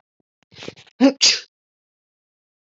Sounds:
Sneeze